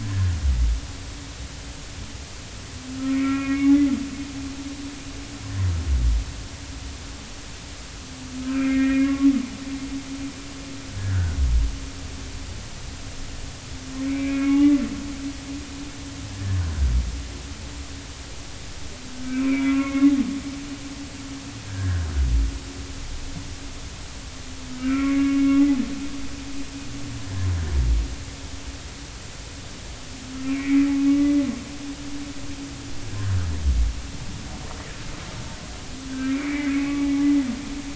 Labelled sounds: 0.0	0.4	humpback whale, 1.5 to 1.8 kHz
3.1	3.7	humpback whale, 1.1 to 2.5 kHz
8.4	9.3	humpback whale, 1.0 to 2.6 kHz
11.0	11.4	humpback whale, 1.4 to 1.8 kHz
14.1	14.8	humpback whale, 1.0 to 2.5 kHz
19.2	20.1	humpback whale, 1.0 to 2.6 kHz
21.7	22.1	humpback whale, 1.4 to 1.8 kHz
24.8	25.4	humpback whale, 1.1 to 2.4 kHz
30.5	31.3	humpback whale, 1.1 to 2.5 kHz
36.1	37.0	humpback whale, 1.5 to 2.5 kHz

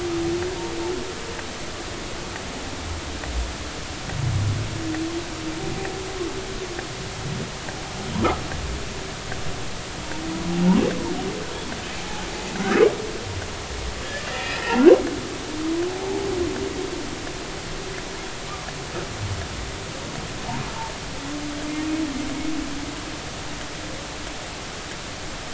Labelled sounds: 12.0	12.8	humpback whale, 0.80 to 1.8 kHz
14.3	14.6	humpback whale, 1.7 to 2.6 kHz

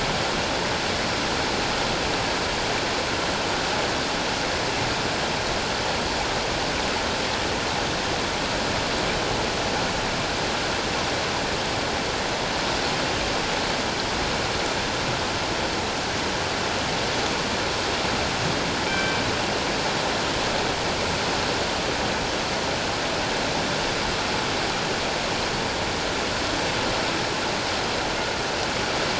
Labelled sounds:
18.9	19.2	killer whale, northern resident, G clan, 1.5 to 3.2 kHz

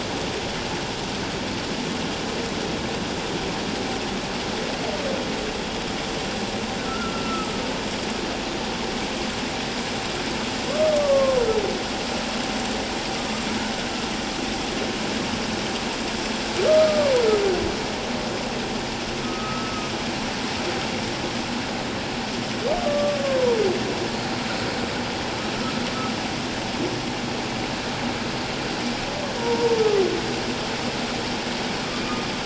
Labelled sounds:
6.9	7.5	humpback whale, 1.2 to 1.5 kHz
11.0	11.4	humpback whale, 1.0 to 1.2 kHz
16.7	17.1	humpback whale, 1.1 to 1.3 kHz
19.2	19.7	humpback whale, 1.2 to 1.3 kHz
22.8	23.2	humpback whale, 1.1 to 1.2 kHz
29.4	29.8	humpback whale, 0.88 to 1.0 kHz

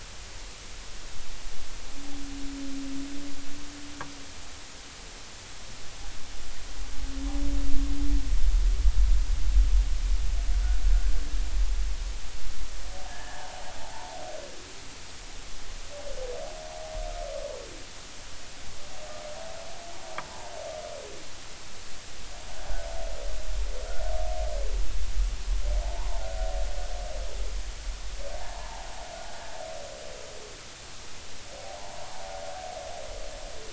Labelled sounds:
13.1	14.2	humpback whale, 0.80 to 1.8 kHz
25.8	26.3	humpback whale, 0.80 to 1.1 kHz
28.4	28.9	humpback whale, 0.80 to 1.1 kHz
31.8	32.2	humpback whale, 0.80 to 1.2 kHz

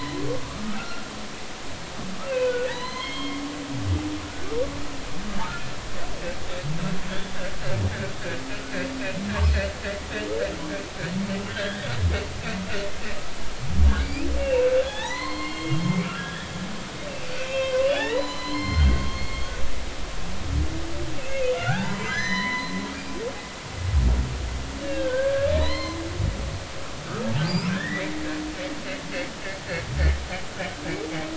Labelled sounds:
0.2	1.0	humpback whale, 1.1 to 2.2 kHz
2.2	3.4	humpback whale, 0.83 to 4.4 kHz
4.2	4.5	humpback whale, 1.3 to 1.6 kHz
7.1	7.4	humpback whale, 3.1 to 3.6 kHz
11.5	11.8	humpback whale, 1.4 to 3.5 kHz
14.0	19.5	humpback whale, 0.80 to 6.1 kHz
21.1	22.7	humpback whale, 0.80 to 6.1 kHz
24.8	26.0	humpback whale, 0.90 to 4.3 kHz
27.7	28.2	humpback whale, 1.4 to 2.2 kHz

